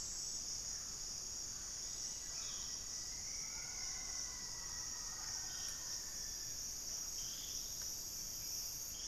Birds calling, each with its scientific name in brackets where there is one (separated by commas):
Rufous-fronted Antthrush (Formicarius rufifrons), unidentified bird, Mealy Parrot (Amazona farinosa), Buff-breasted Wren (Cantorchilus leucotis)